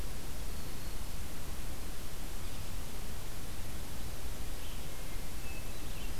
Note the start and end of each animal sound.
[0.00, 1.41] Black-throated Green Warbler (Setophaga virens)
[4.49, 6.19] Red-eyed Vireo (Vireo olivaceus)
[4.70, 6.19] Hermit Thrush (Catharus guttatus)

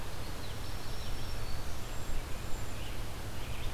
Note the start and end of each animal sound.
[0.07, 1.74] Common Yellowthroat (Geothlypis trichas)
[0.43, 1.86] Black-throated Green Warbler (Setophaga virens)
[1.65, 2.97] Cedar Waxwing (Bombycilla cedrorum)
[2.68, 3.74] Red-eyed Vireo (Vireo olivaceus)

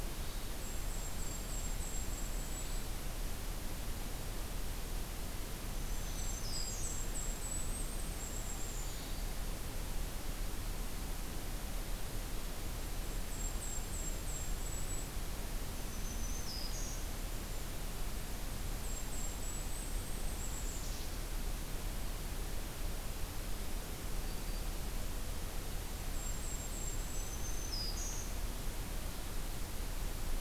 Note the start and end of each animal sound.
[0.01, 0.56] Hermit Thrush (Catharus guttatus)
[0.42, 3.03] Golden-crowned Kinglet (Regulus satrapa)
[2.37, 2.86] Hermit Thrush (Catharus guttatus)
[5.62, 7.02] Black-throated Green Warbler (Setophaga virens)
[5.62, 9.07] Golden-crowned Kinglet (Regulus satrapa)
[5.81, 6.29] Hermit Thrush (Catharus guttatus)
[8.68, 9.43] Black-throated Green Warbler (Setophaga virens)
[8.71, 9.28] Hermit Thrush (Catharus guttatus)
[12.61, 15.21] Golden-crowned Kinglet (Regulus satrapa)
[15.63, 17.11] Black-throated Green Warbler (Setophaga virens)
[18.56, 21.11] Golden-crowned Kinglet (Regulus satrapa)
[24.06, 24.84] Black-throated Green Warbler (Setophaga virens)
[25.71, 27.48] Golden-crowned Kinglet (Regulus satrapa)
[26.85, 28.30] Black-throated Green Warbler (Setophaga virens)

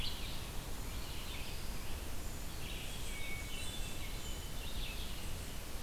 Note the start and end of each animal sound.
[0.00, 5.83] Red-eyed Vireo (Vireo olivaceus)
[0.87, 1.90] Eastern Wood-Pewee (Contopus virens)
[2.77, 4.63] Hermit Thrush (Catharus guttatus)

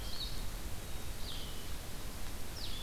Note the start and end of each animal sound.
[0.00, 2.83] Blue-headed Vireo (Vireo solitarius)
[0.78, 1.69] Black-capped Chickadee (Poecile atricapillus)

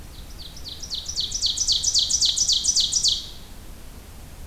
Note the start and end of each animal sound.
[0.00, 3.37] Ovenbird (Seiurus aurocapilla)

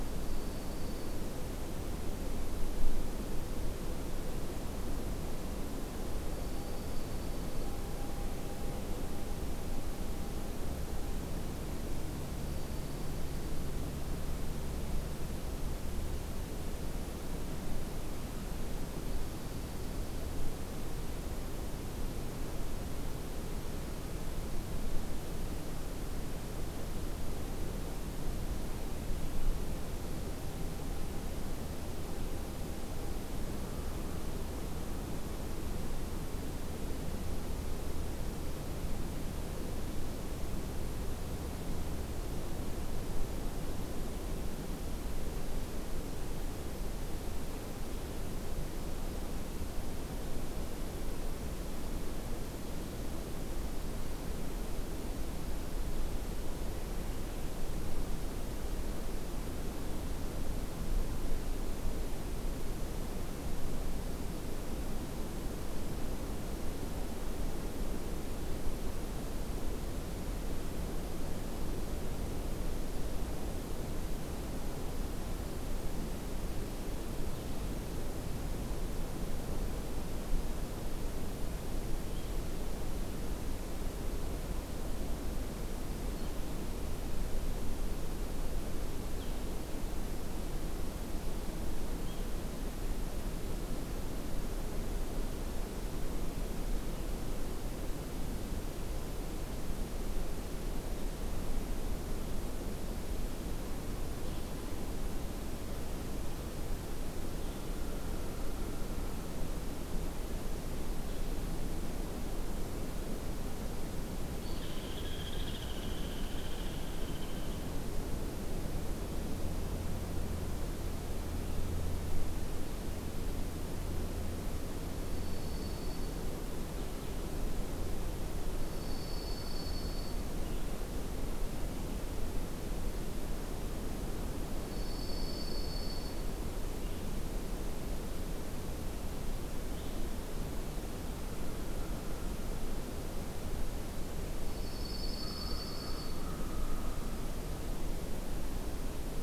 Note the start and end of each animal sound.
[0.00, 1.27] Dark-eyed Junco (Junco hyemalis)
[6.32, 7.77] Dark-eyed Junco (Junco hyemalis)
[12.32, 13.62] Dark-eyed Junco (Junco hyemalis)
[19.01, 20.34] Dark-eyed Junco (Junco hyemalis)
[82.06, 111.29] Blue-headed Vireo (Vireo solitarius)
[114.37, 117.75] Hairy Woodpecker (Dryobates villosus)
[124.93, 126.25] Dark-eyed Junco (Junco hyemalis)
[128.49, 130.29] Dark-eyed Junco (Junco hyemalis)
[134.61, 136.31] Dark-eyed Junco (Junco hyemalis)
[136.62, 140.20] Blue-headed Vireo (Vireo solitarius)
[141.10, 142.78] American Crow (Corvus brachyrhynchos)
[144.32, 146.28] Dark-eyed Junco (Junco hyemalis)
[145.15, 147.70] American Crow (Corvus brachyrhynchos)

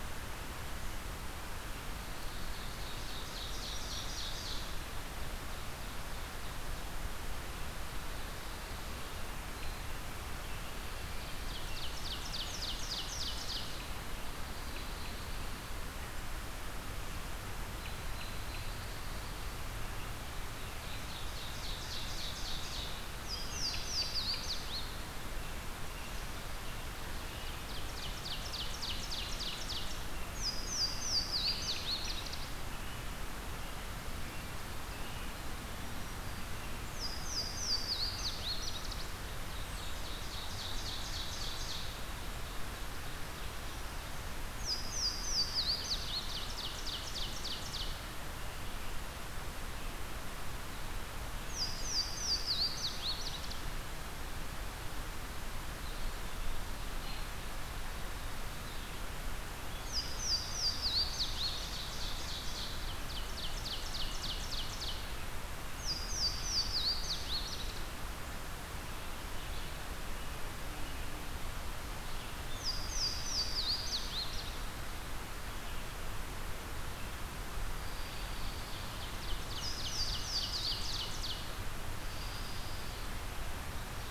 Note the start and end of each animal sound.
[2.35, 7.09] Ovenbird (Seiurus aurocapilla)
[3.33, 4.62] Black-throated Green Warbler (Setophaga virens)
[11.28, 13.86] Ovenbird (Seiurus aurocapilla)
[14.07, 15.75] Pine Warbler (Setophaga pinus)
[17.70, 18.69] American Robin (Turdus migratorius)
[18.28, 19.84] Pine Warbler (Setophaga pinus)
[20.43, 23.26] Ovenbird (Seiurus aurocapilla)
[22.46, 24.97] Louisiana Waterthrush (Parkesia motacilla)
[23.30, 24.49] American Robin (Turdus migratorius)
[25.25, 28.44] American Robin (Turdus migratorius)
[27.15, 30.15] Ovenbird (Seiurus aurocapilla)
[30.20, 32.84] Louisiana Waterthrush (Parkesia motacilla)
[31.20, 35.37] American Robin (Turdus migratorius)
[35.66, 36.59] Black-throated Green Warbler (Setophaga virens)
[36.66, 39.18] Louisiana Waterthrush (Parkesia motacilla)
[39.35, 43.86] Ovenbird (Seiurus aurocapilla)
[44.51, 46.74] Louisiana Waterthrush (Parkesia motacilla)
[46.00, 48.03] Ovenbird (Seiurus aurocapilla)
[51.36, 53.71] Louisiana Waterthrush (Parkesia motacilla)
[55.70, 56.99] Eastern Wood-Pewee (Contopus virens)
[58.36, 84.10] Red-eyed Vireo (Vireo olivaceus)
[59.68, 61.90] Louisiana Waterthrush (Parkesia motacilla)
[61.15, 65.12] Ovenbird (Seiurus aurocapilla)
[65.64, 68.12] Louisiana Waterthrush (Parkesia motacilla)
[72.31, 74.82] Louisiana Waterthrush (Parkesia motacilla)
[77.65, 78.97] American Robin (Turdus migratorius)
[78.56, 81.66] Ovenbird (Seiurus aurocapilla)
[79.36, 81.17] Louisiana Waterthrush (Parkesia motacilla)
[81.89, 83.13] American Robin (Turdus migratorius)
[83.40, 84.10] Black-throated Green Warbler (Setophaga virens)

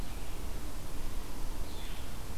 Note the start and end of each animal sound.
[0.00, 2.38] Red-eyed Vireo (Vireo olivaceus)

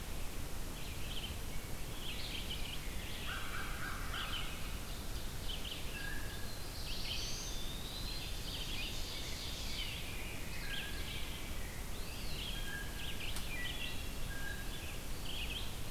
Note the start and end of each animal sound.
[0.63, 15.90] Red-eyed Vireo (Vireo olivaceus)
[1.41, 4.45] Rose-breasted Grosbeak (Pheucticus ludovicianus)
[3.15, 4.49] American Crow (Corvus brachyrhynchos)
[4.43, 6.16] Ovenbird (Seiurus aurocapilla)
[5.84, 6.54] Blue Jay (Cyanocitta cristata)
[6.35, 7.66] Black-throated Blue Warbler (Setophaga caerulescens)
[7.00, 8.31] Eastern Wood-Pewee (Contopus virens)
[7.78, 9.99] Ovenbird (Seiurus aurocapilla)
[8.42, 11.99] Rose-breasted Grosbeak (Pheucticus ludovicianus)
[10.56, 11.11] Blue Jay (Cyanocitta cristata)
[11.84, 12.85] Eastern Wood-Pewee (Contopus virens)
[12.46, 14.82] Blue Jay (Cyanocitta cristata)

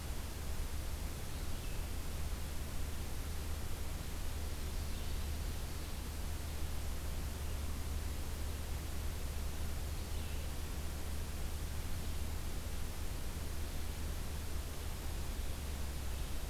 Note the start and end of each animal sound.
[0.00, 1.83] Blue-headed Vireo (Vireo solitarius)
[4.50, 6.28] Ovenbird (Seiurus aurocapilla)
[4.80, 5.41] Blue-headed Vireo (Vireo solitarius)
[9.91, 16.49] Blue-headed Vireo (Vireo solitarius)

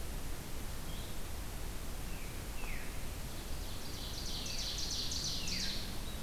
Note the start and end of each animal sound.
[1.93, 2.94] Veery (Catharus fuscescens)
[3.32, 5.97] Ovenbird (Seiurus aurocapilla)

